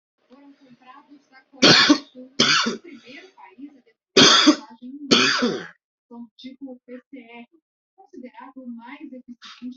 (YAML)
expert_labels:
- quality: ok
  cough_type: dry
  dyspnea: false
  wheezing: false
  stridor: false
  choking: false
  congestion: false
  nothing: true
  diagnosis: COVID-19
  severity: mild
age: 33
gender: male
respiratory_condition: true
fever_muscle_pain: true
status: healthy